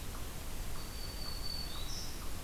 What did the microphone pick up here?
Black-throated Green Warbler